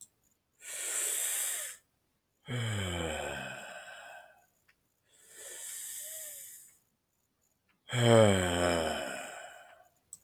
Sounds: Sigh